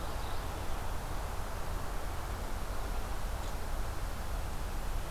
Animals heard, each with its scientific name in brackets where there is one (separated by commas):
Red-eyed Vireo (Vireo olivaceus)